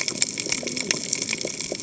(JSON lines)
{"label": "biophony, cascading saw", "recorder": "HydroMoth"}